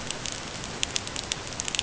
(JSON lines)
{"label": "ambient", "recorder": "HydroMoth"}